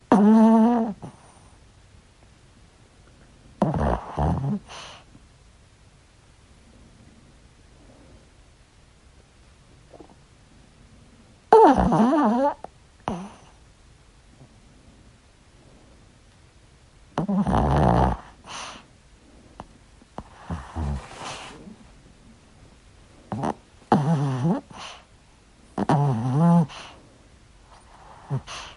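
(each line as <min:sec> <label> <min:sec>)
0:00.0 A 10-year-old male Poodle/Chihuahua mix snores softly while sleeping. 0:01.2
0:03.5 A 10-year-old male Poodle/Chihuahua mix snores softly while sleeping. 0:05.2
0:11.5 A 10-year-old male Poodle/Chihuahua mix snores softly while sleeping. 0:13.5
0:17.1 A 10-year-old male Poodle/Chihuahua mix snores softly while sleeping. 0:21.8
0:23.2 A 10-year-old male Poodle/Chihuahua mix snores softly while sleeping. 0:28.8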